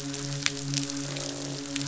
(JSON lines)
{"label": "biophony, croak", "recorder": "SoundTrap 500"}
{"label": "biophony, midshipman", "recorder": "SoundTrap 500"}